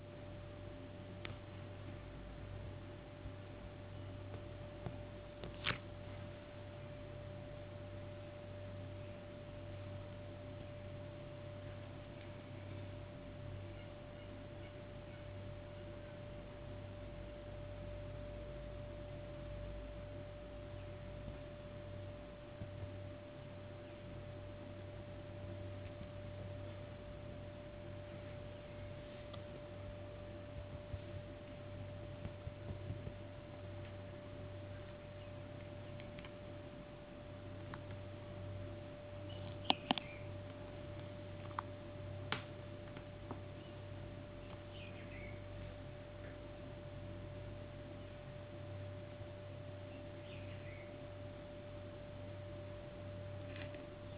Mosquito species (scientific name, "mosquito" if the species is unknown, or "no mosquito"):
no mosquito